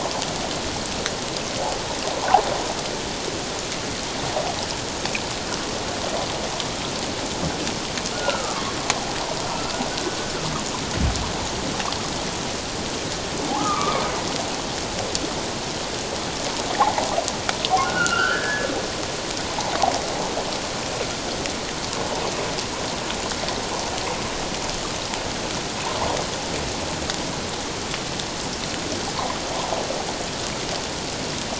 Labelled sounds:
8.1	8.7	humpback whale, 1.0 to 1.5 kHz
9.5	9.7	humpback whale, 1.3 to 1.4 kHz
13.6	14.0	humpback whale, 0.84 to 1.4 kHz
17.6	18.7	humpback whale, 0.97 to 3.2 kHz

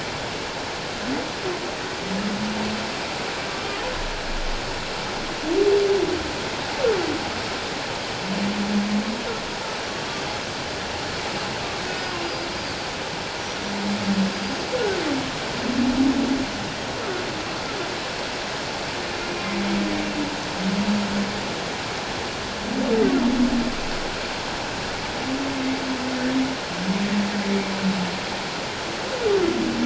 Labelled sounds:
11.9	12.1	humpback whale, 1.4 to 1.5 kHz
14.3	14.6	Pacific white-sided dolphin, 4.7 to 4.9 kHz

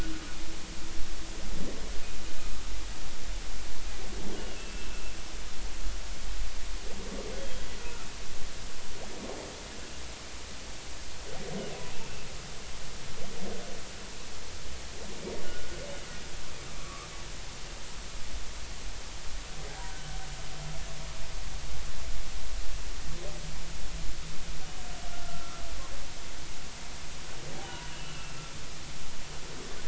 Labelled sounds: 4.6	5.0	humpback whale, 2.6 to 2.7 kHz
7.4	7.7	humpback whale, 3.2 to 3.4 kHz
15.4	15.8	humpback whale, 1.4 to 1.6 kHz
16.7	17.1	humpback whale, 1.1 to 1.4 kHz
25.2	25.6	humpback whale, 1.2 to 1.4 kHz
27.6	28.4	humpback whale, 0.80 to 3.0 kHz

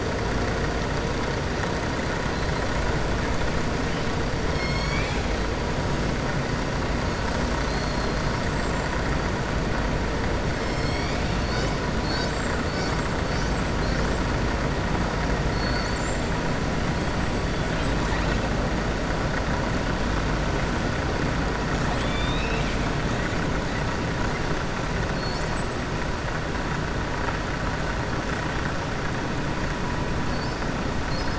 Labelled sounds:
4.4	5.2	killer whale, southern resident, 2.1 to 7.6 kHz
7.5	8.2	killer whale, southern resident, 4.0 to 5.1 kHz
21.8	22.8	killer whale, southern resident, 2.3 to 5.5 kHz

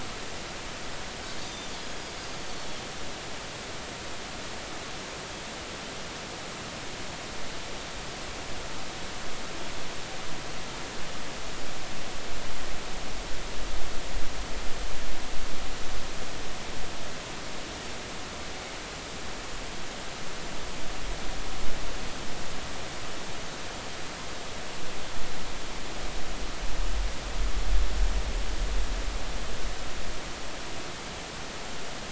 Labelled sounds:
1.4	1.7	Pacific white-sided dolphin, 3.5 to 3.8 kHz

